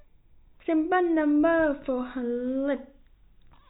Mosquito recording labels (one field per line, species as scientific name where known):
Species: no mosquito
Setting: cup